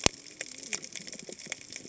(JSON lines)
{"label": "biophony, cascading saw", "recorder": "HydroMoth"}